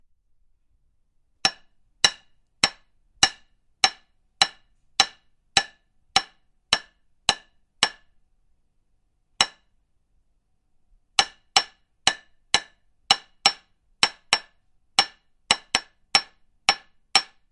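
A nail is being hammered periodically. 0:01.3 - 0:08.0
A nail is being hammered. 0:09.3 - 0:09.6
A nail is being hammered periodically. 0:11.1 - 0:17.3

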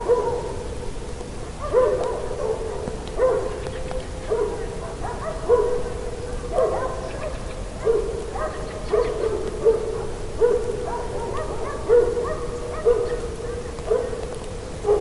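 Dogs barking outside. 0:00.0 - 0:15.0

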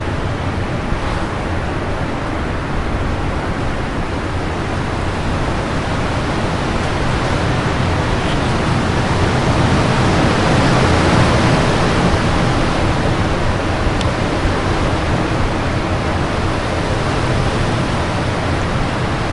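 A very loud and clear wind is building up outdoors. 0:00.0 - 0:19.3

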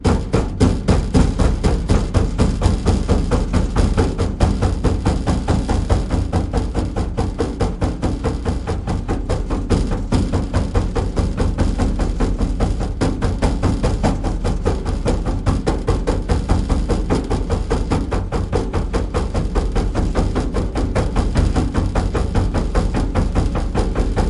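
A loud metallic thud with a rattle repeating in a steady pattern. 0:00.0 - 0:24.3

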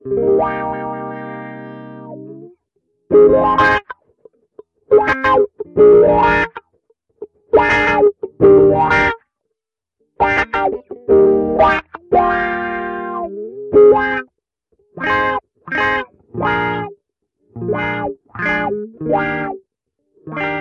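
A solo guitar is playing. 0:00.0 - 0:20.6

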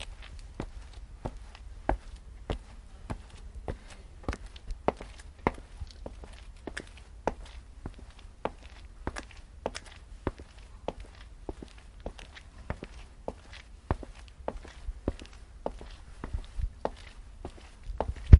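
A person walks across a hard floor with steady, rhythmic footsteps. 0:00.2 - 0:18.2

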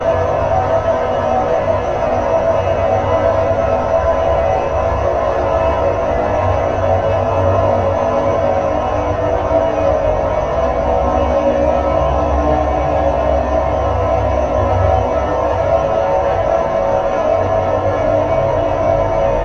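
Thousands of distant heavy chimes wail repeatedly. 0:00.0 - 0:19.4

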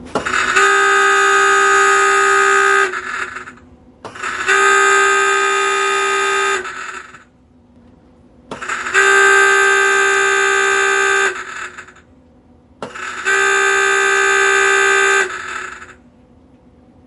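An alarm starts up. 0:00.0 - 0:00.5
An alarm sounds, indicating a submarine submersion. 0:00.5 - 0:02.9
An alarm starts up. 0:02.9 - 0:04.5
An alarm sounds, indicating a submarine submersion. 0:04.5 - 0:06.6
An alarm starts up. 0:06.6 - 0:07.2
An alarm starts up. 0:08.5 - 0:08.9
An alarm sounds, indicating a submarine submersion. 0:08.9 - 0:11.3
An alarm starts up. 0:11.3 - 0:11.9
An alarm starts up. 0:12.8 - 0:13.2
An alarm sounds on a submarine. 0:13.2 - 0:15.3
An alarm starts up. 0:15.3 - 0:15.9
Quiet whirring of fans. 0:15.9 - 0:17.1

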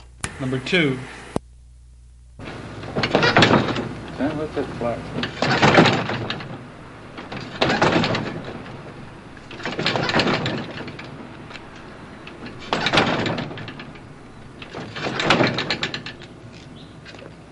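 A man is speaking. 0:00.0 - 0:01.4
An engine is struggling to start repeatedly. 0:02.4 - 0:17.5

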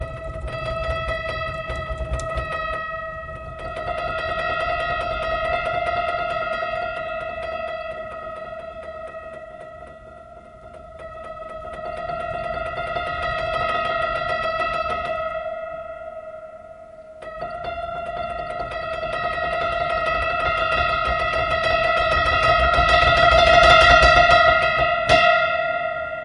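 Broken piano notes sound creepy and fade out, starting with high intensity and fast pace. 0:00.0 - 0:10.9
A broken piano sound fades in and out, intensifying rapidly in the middle. 0:10.9 - 0:17.0
A creepy broken piano sound fades in, intensifies with high and fast notes, and then fades out. 0:17.2 - 0:26.2

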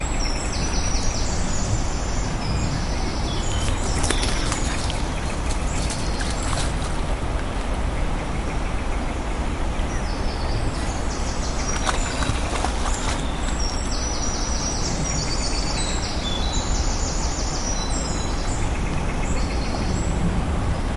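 A river flows continuously in the distance. 0:00.0 - 0:21.0
Multiple birds chirp in rhythmic patterns in the distance. 0:00.0 - 0:21.0
Loud crackling distortion from a microphone outdoors. 0:03.6 - 0:07.5
Loud crackling distortion from a microphone outdoors. 0:11.8 - 0:13.4

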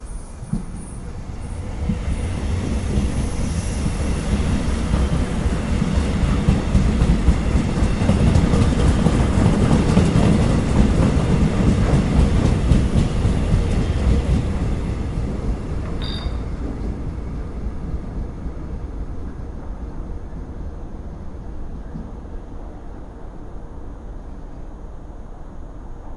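A metro train passes by on an outdoor rail. 0:00.0 - 0:26.2
A short beep from a traffic light. 0:16.0 - 0:16.6

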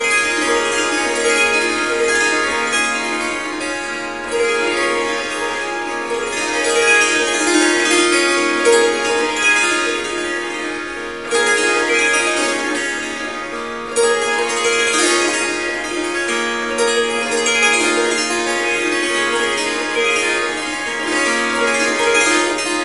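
Traditional Indian music playing. 0:00.0 - 0:22.8

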